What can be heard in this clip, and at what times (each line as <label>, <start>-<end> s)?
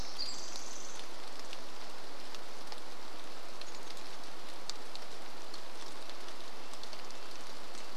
Pacific Wren song, 0-2 s
rain, 0-8 s
Red-breasted Nuthatch song, 6-8 s